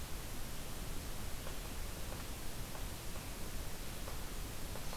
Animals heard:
forest ambience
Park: Katahdin Woods and Waters National Monument